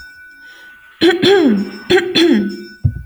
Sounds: Throat clearing